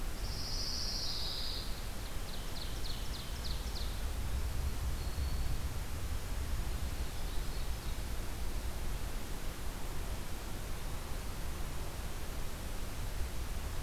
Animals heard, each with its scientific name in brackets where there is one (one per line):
Eastern Wood-Pewee (Contopus virens)
Ovenbird (Seiurus aurocapilla)
Black-throated Green Warbler (Setophaga virens)
Pine Warbler (Setophaga pinus)